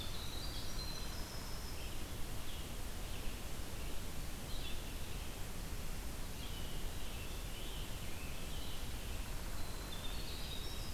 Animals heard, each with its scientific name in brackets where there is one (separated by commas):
Scarlet Tanager (Piranga olivacea), Winter Wren (Troglodytes hiemalis), Red-eyed Vireo (Vireo olivaceus)